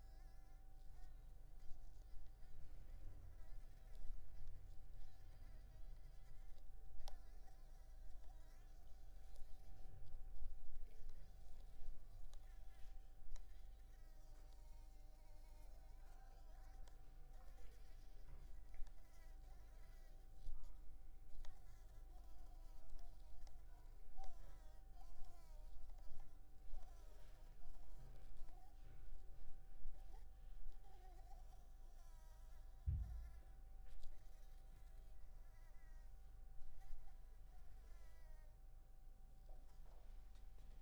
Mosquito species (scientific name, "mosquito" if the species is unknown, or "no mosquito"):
Anopheles maculipalpis